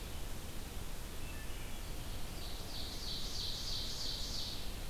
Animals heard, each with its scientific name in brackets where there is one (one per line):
Ovenbird (Seiurus aurocapilla)